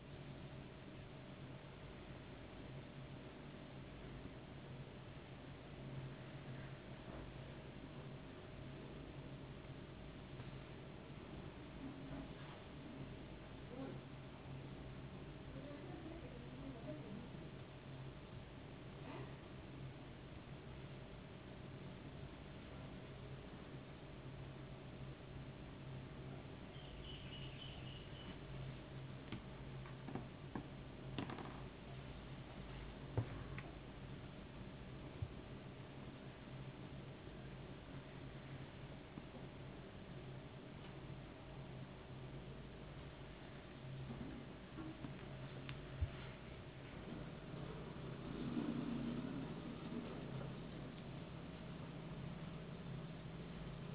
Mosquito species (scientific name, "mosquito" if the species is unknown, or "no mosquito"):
no mosquito